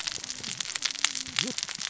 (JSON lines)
{"label": "biophony, cascading saw", "recorder": "SoundTrap 600 or HydroMoth"}